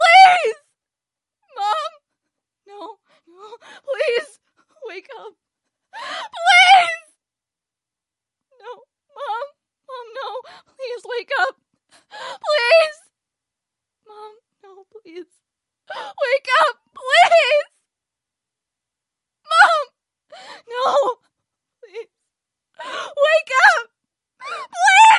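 0.0s A distressed woman screams hysterically and cries in an emotionally intense and urgent tone. 25.2s

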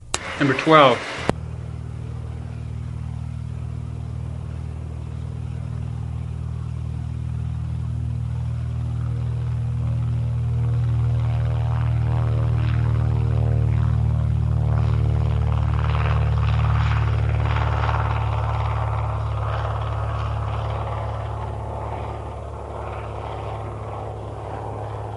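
0.4s An announcement is made before the airplane begins its takeoff sequence. 1.2s
1.3s An airplane engine starts and gradually increases in volume as it prepares for takeoff, then the aircraft takes off with the sound of its wings cutting through the air, and the engine noise slowly fades into the distance until it disappears. 25.2s

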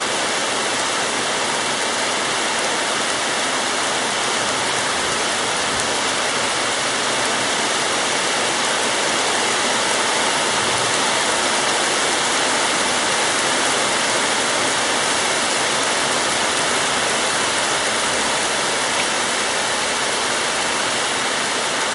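0.0s Heavy rain hitting concrete outside. 21.9s

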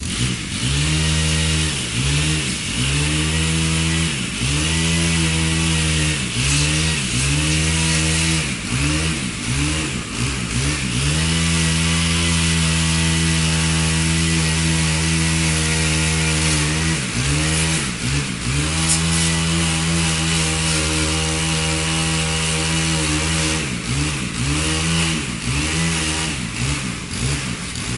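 0.0s A chainsaw is loudly cutting down branches nearby. 28.0s

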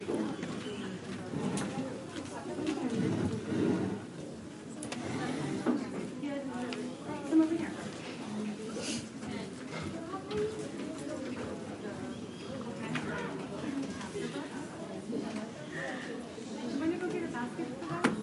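0.0s Low speaking and muffled background noise in a library. 18.2s

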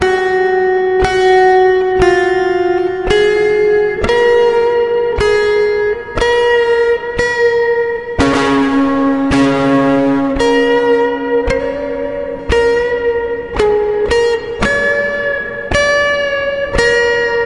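0.0s An electric guitar plays multiple chords with varying pitch and a steady rhythm. 17.5s

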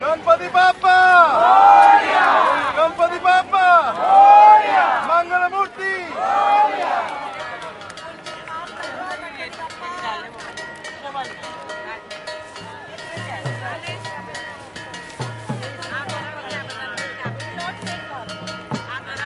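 0.0s A man chants loudly and rhythmically to a crowd, and the crowd responds loudly and rhythmically as one. 7.8s
7.4s People are conversing outdoors while cowbells ring in a steady pattern. 19.2s
13.8s People converse outdoors in the background while cowbells ring in a steady pattern and a drum plays slowly and quietly. 19.2s

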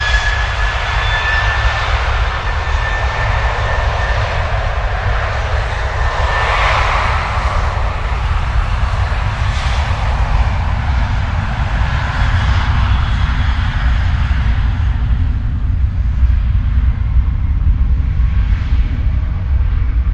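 0.1s A jet engine loudly roars as the aircraft takes off and the sound fades into the distance. 20.1s

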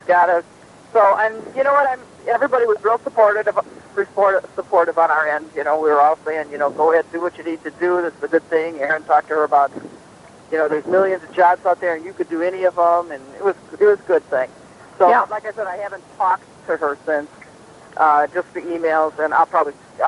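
0.1s A woman is talking on the phone. 20.0s

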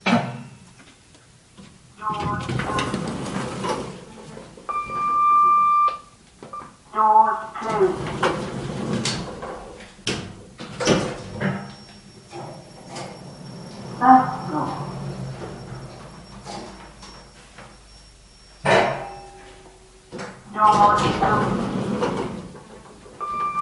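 0.0s A short metallic klonk sound. 1.1s
1.9s An elevator door opens while a voice announces. 4.1s
4.7s A moderately high-pitched beep. 6.2s
6.4s A short, moderately high-pitched beep sounds. 6.7s
6.9s An elevator door closes with multiple metallic knocking sounds accompanied by a voice announcement. 11.9s
12.3s An elevator accelerates and decelerates while a voice announces the first floor. 17.6s
18.5s A loud metallic clank. 19.4s
20.0s An elevator door opens while a voice announces. 22.9s
23.1s A moderately high-pitched beep. 23.6s

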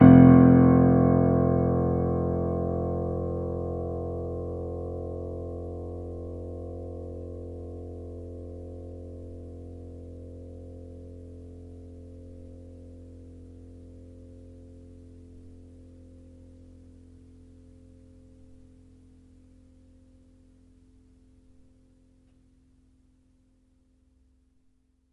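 0.0s A piano key is being pressed. 24.1s

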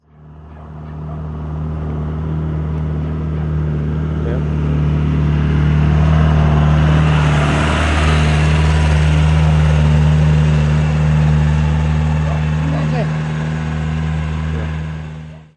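0.5s A heavy truck passes by, approaching and then moving away. 15.5s

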